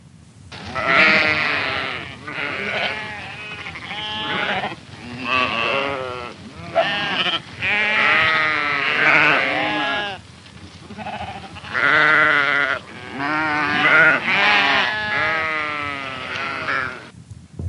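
Sheep bleat loudly in a rhythmic pattern. 0:00.4 - 0:17.7
Sheep bleat loudly with a fading tone. 0:00.7 - 0:17.7

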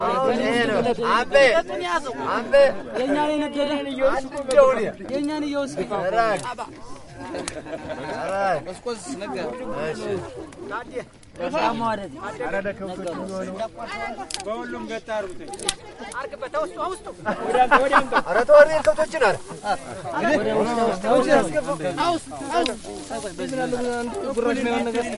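People are talking and laughing loudly outside with the sound of fire in the background. 0:00.0 - 0:25.2

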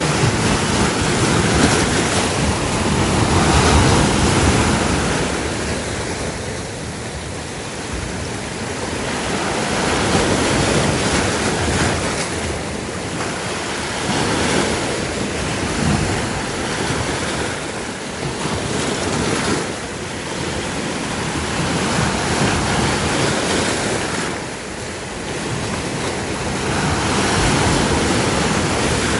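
A faint wind and soft ocean waves are heard continuously at the shoreline. 0:00.0 - 0:29.2
Waves crash rhythmically against the shore. 0:00.0 - 0:06.1
Waves are heard faintly. 0:06.1 - 0:08.7
Waves tossing an object or boat on the water. 0:08.7 - 0:24.6
Waves crashing against the shoreline. 0:25.2 - 0:29.2

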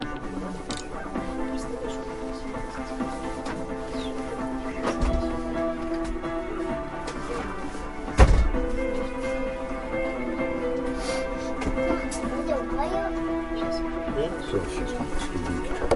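Quiet background music playing outdoors. 0:00.0 - 0:16.0
Occasional sounds of people. 0:01.8 - 0:03.3
Quiet impact sound. 0:08.1 - 0:08.6
A person is sniffing. 0:11.6 - 0:12.3
Occasional sounds of people. 0:11.6 - 0:12.3
Occasional sounds of people. 0:14.4 - 0:15.9
People talking indistinctly in the background. 0:14.4 - 0:15.9

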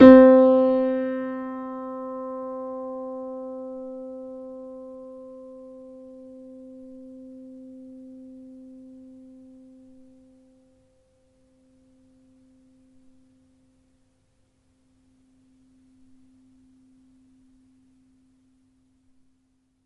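A piano plays a single note, starting loudly and fading out at the end. 0:00.0 - 0:19.9

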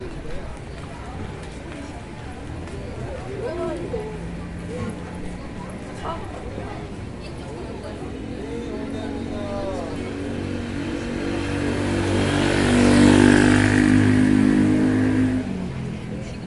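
Muffled footsteps. 0:00.0 - 0:07.5
Several people are talking with overlapping voices. 0:00.0 - 0:08.5
A low-pitched motorcycle rumble that grows louder and higher in frequency. 0:08.5 - 0:12.9
A motorcycle roars as it passes by. 0:12.8 - 0:13.9
High-pitched motorcycle rumble fading and lowering in frequency. 0:13.9 - 0:16.5

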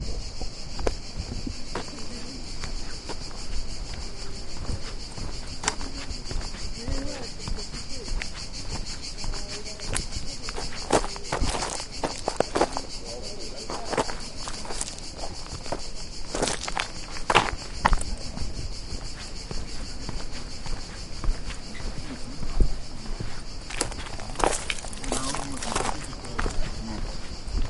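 Footsteps crunch on loose gravel, blending with the rhythmic buzz of cicadas. 0:00.1 - 0:06.7
Footsteps walking on gravel with distant murmurs of conversation fading away. 0:06.8 - 0:14.6
Footsteps crunch on loose gravel, blending with the rhythmic buzz of cicadas. 0:14.7 - 0:25.3
Footsteps walking on gravel with distant murmurs of conversation fading away. 0:25.4 - 0:27.7

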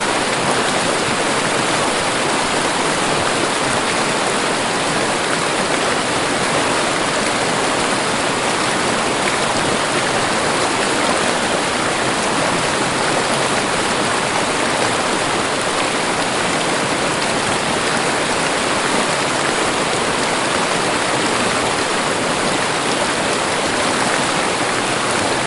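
A steady stream of water flows close to the microphone, creating a smooth, natural rushing sound. 0:00.0 - 0:25.4

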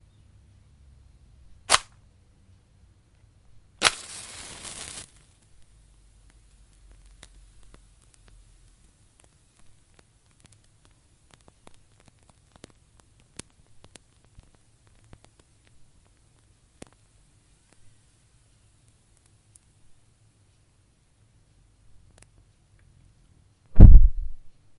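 A person lights a fire using a match. 0:01.6 - 0:02.4
A match ignites with a burst of flame. 0:03.7 - 0:05.7
A match is burning slowly with a low flame. 0:06.1 - 0:23.6
A match flame goes out quietly. 0:23.7 - 0:24.7

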